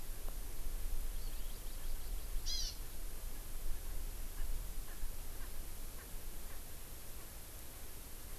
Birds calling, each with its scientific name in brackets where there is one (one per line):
Erckel's Francolin (Pternistis erckelii)
Hawaii Amakihi (Chlorodrepanis virens)